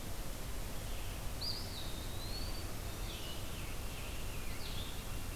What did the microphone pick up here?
Blue-headed Vireo, Eastern Wood-Pewee, Scarlet Tanager